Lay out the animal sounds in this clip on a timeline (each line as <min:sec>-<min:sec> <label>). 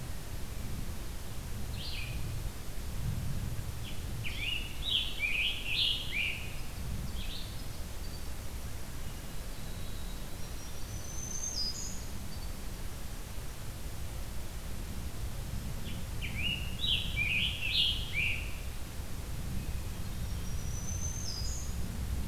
0:01.6-0:02.2 Red-eyed Vireo (Vireo olivaceus)
0:03.7-0:06.9 Scarlet Tanager (Piranga olivacea)
0:07.0-0:07.6 Red-eyed Vireo (Vireo olivaceus)
0:07.9-0:11.5 Winter Wren (Troglodytes hiemalis)
0:10.4-0:12.3 Black-throated Green Warbler (Setophaga virens)
0:15.7-0:18.9 Scarlet Tanager (Piranga olivacea)
0:20.1-0:21.8 Black-throated Green Warbler (Setophaga virens)